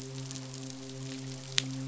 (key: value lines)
label: biophony, midshipman
recorder: SoundTrap 500